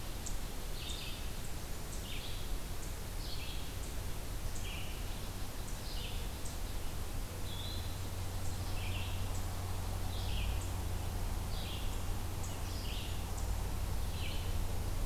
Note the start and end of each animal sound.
0.0s-0.7s: unknown mammal
0.0s-15.1s: Red-eyed Vireo (Vireo olivaceus)
4.9s-6.9s: unknown mammal
7.3s-7.9s: Eastern Wood-Pewee (Contopus virens)

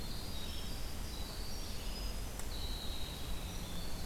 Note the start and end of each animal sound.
0.0s-4.1s: Red-eyed Vireo (Vireo olivaceus)
0.0s-4.1s: Winter Wren (Troglodytes hiemalis)

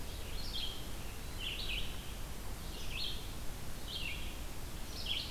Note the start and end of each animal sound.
0.0s-5.3s: Red-eyed Vireo (Vireo olivaceus)

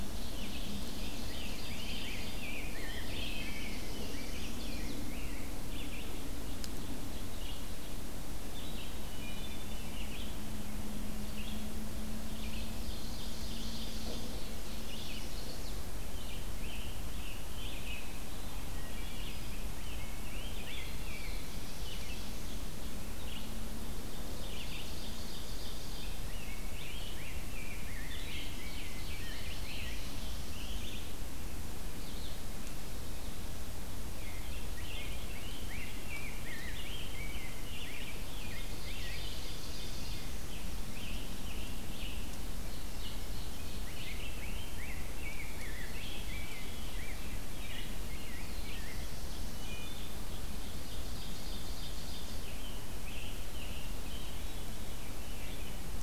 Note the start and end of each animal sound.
0.0s-2.8s: Ovenbird (Seiurus aurocapilla)
0.0s-39.9s: Red-eyed Vireo (Vireo olivaceus)
0.9s-6.2s: Rose-breasted Grosbeak (Pheucticus ludovicianus)
2.6s-4.6s: Black-throated Blue Warbler (Setophaga caerulescens)
4.0s-5.0s: Chestnut-sided Warbler (Setophaga pensylvanica)
9.0s-9.9s: Wood Thrush (Hylocichla mustelina)
12.3s-14.2s: Black-throated Blue Warbler (Setophaga caerulescens)
12.6s-14.3s: Ovenbird (Seiurus aurocapilla)
14.6s-15.9s: Chestnut-sided Warbler (Setophaga pensylvanica)
15.9s-18.1s: Scarlet Tanager (Piranga olivacea)
18.7s-19.4s: Wood Thrush (Hylocichla mustelina)
19.3s-21.8s: Rose-breasted Grosbeak (Pheucticus ludovicianus)
20.6s-23.1s: Black-throated Blue Warbler (Setophaga caerulescens)
24.1s-26.5s: Ovenbird (Seiurus aurocapilla)
26.0s-30.1s: Rose-breasted Grosbeak (Pheucticus ludovicianus)
28.3s-30.0s: Ovenbird (Seiurus aurocapilla)
29.3s-31.1s: Black-throated Blue Warbler (Setophaga caerulescens)
34.1s-39.3s: Rose-breasted Grosbeak (Pheucticus ludovicianus)
38.0s-40.4s: Ovenbird (Seiurus aurocapilla)
39.9s-42.5s: Scarlet Tanager (Piranga olivacea)
41.0s-56.0s: Red-eyed Vireo (Vireo olivaceus)
42.3s-44.2s: Ovenbird (Seiurus aurocapilla)
43.8s-49.1s: Rose-breasted Grosbeak (Pheucticus ludovicianus)
47.8s-50.3s: Black-throated Blue Warbler (Setophaga caerulescens)
49.5s-50.1s: Wood Thrush (Hylocichla mustelina)
50.3s-52.5s: Ovenbird (Seiurus aurocapilla)
52.3s-54.2s: Scarlet Tanager (Piranga olivacea)
54.1s-55.5s: Veery (Catharus fuscescens)

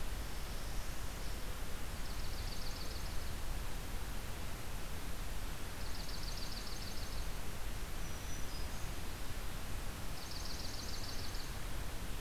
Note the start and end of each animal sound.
0.1s-1.4s: Northern Parula (Setophaga americana)
1.8s-3.3s: Swamp Sparrow (Melospiza georgiana)
5.7s-7.3s: Swamp Sparrow (Melospiza georgiana)
7.8s-9.1s: Black-throated Green Warbler (Setophaga virens)
9.9s-11.6s: Swamp Sparrow (Melospiza georgiana)

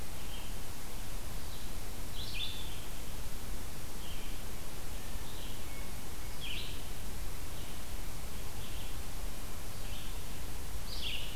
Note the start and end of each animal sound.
0.0s-11.4s: Red-eyed Vireo (Vireo olivaceus)
4.9s-6.0s: Hermit Thrush (Catharus guttatus)

